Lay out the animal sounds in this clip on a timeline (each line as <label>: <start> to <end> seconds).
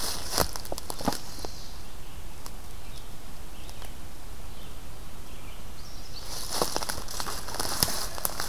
Red-eyed Vireo (Vireo olivaceus): 0.0 to 8.5 seconds
Chestnut-sided Warbler (Setophaga pensylvanica): 5.6 to 6.8 seconds